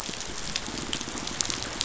{"label": "biophony", "recorder": "SoundTrap 500"}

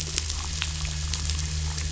{"label": "anthrophony, boat engine", "recorder": "SoundTrap 500"}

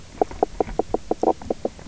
{"label": "biophony, knock croak", "recorder": "SoundTrap 300"}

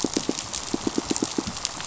{"label": "biophony, pulse", "recorder": "SoundTrap 500"}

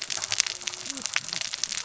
{"label": "biophony, cascading saw", "recorder": "SoundTrap 600 or HydroMoth"}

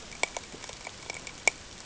{"label": "ambient", "recorder": "HydroMoth"}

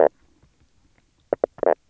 {"label": "biophony, knock croak", "recorder": "SoundTrap 300"}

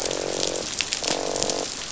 {"label": "biophony, croak", "recorder": "SoundTrap 500"}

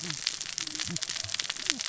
{"label": "biophony, cascading saw", "recorder": "SoundTrap 600 or HydroMoth"}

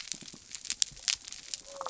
{"label": "biophony", "recorder": "SoundTrap 300"}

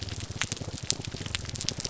{"label": "biophony, grouper groan", "recorder": "SoundTrap 300"}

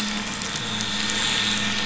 {"label": "anthrophony, boat engine", "recorder": "SoundTrap 500"}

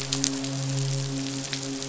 {"label": "biophony, midshipman", "recorder": "SoundTrap 500"}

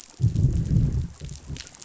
{"label": "biophony, growl", "recorder": "SoundTrap 500"}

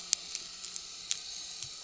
{"label": "anthrophony, boat engine", "recorder": "SoundTrap 300"}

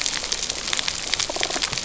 {"label": "biophony", "recorder": "SoundTrap 300"}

